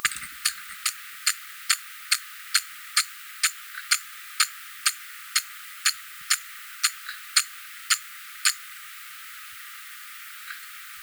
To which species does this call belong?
Eupholidoptera smyrnensis